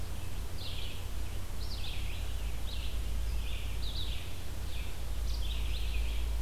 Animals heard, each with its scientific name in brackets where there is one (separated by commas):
Red-eyed Vireo (Vireo olivaceus)